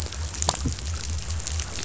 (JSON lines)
{"label": "biophony", "recorder": "SoundTrap 500"}